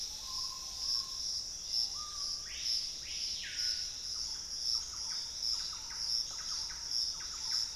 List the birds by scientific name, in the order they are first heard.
Cercomacra cinerascens, Odontophorus stellatus, Lipaugus vociferans, unidentified bird, Campylorhynchus turdinus, Piculus leucolaemus